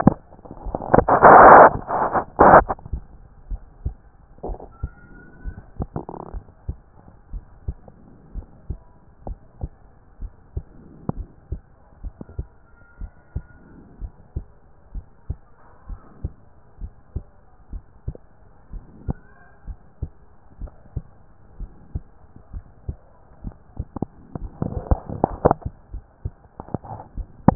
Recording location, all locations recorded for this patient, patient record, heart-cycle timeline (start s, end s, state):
pulmonary valve (PV)
aortic valve (AV)+pulmonary valve (PV)+tricuspid valve (TV)+mitral valve (MV)
#Age: Adolescent
#Sex: Male
#Height: 155.0 cm
#Weight: 47.1 kg
#Pregnancy status: False
#Murmur: Absent
#Murmur locations: nan
#Most audible location: nan
#Systolic murmur timing: nan
#Systolic murmur shape: nan
#Systolic murmur grading: nan
#Systolic murmur pitch: nan
#Systolic murmur quality: nan
#Diastolic murmur timing: nan
#Diastolic murmur shape: nan
#Diastolic murmur grading: nan
#Diastolic murmur pitch: nan
#Diastolic murmur quality: nan
#Outcome: Abnormal
#Campaign: 2014 screening campaign
0.00	7.07	unannotated
7.07	7.32	diastole
7.32	7.44	S1
7.44	7.66	systole
7.66	7.76	S2
7.76	8.34	diastole
8.34	8.46	S1
8.46	8.68	systole
8.68	8.78	S2
8.78	9.26	diastole
9.26	9.38	S1
9.38	9.60	systole
9.60	9.72	S2
9.72	10.20	diastole
10.20	10.32	S1
10.32	10.54	systole
10.54	10.64	S2
10.64	11.14	diastole
11.14	11.28	S1
11.28	11.50	systole
11.50	11.60	S2
11.60	12.02	diastole
12.02	12.14	S1
12.14	12.36	systole
12.36	12.46	S2
12.46	13.00	diastole
13.00	13.12	S1
13.12	13.34	systole
13.34	13.44	S2
13.44	14.00	diastole
14.00	14.12	S1
14.12	14.34	systole
14.34	14.46	S2
14.46	14.94	diastole
14.94	15.06	S1
15.06	15.28	systole
15.28	15.38	S2
15.38	15.88	diastole
15.88	16.00	S1
16.00	16.22	systole
16.22	16.32	S2
16.32	16.80	diastole
16.80	16.92	S1
16.92	17.14	systole
17.14	17.24	S2
17.24	17.72	diastole
17.72	17.84	S1
17.84	18.06	systole
18.06	18.16	S2
18.16	18.72	diastole
18.72	18.84	S1
18.84	19.06	systole
19.06	19.18	S2
19.18	19.66	diastole
19.66	19.78	S1
19.78	20.00	systole
20.00	20.10	S2
20.10	20.60	diastole
20.60	20.72	S1
20.72	20.94	systole
20.94	21.04	S2
21.04	21.60	diastole
21.60	21.70	S1
21.70	21.94	systole
21.94	22.04	S2
22.04	22.54	diastole
22.54	22.64	S1
22.64	22.86	systole
22.86	22.98	S2
22.98	23.38	diastole
23.38	27.55	unannotated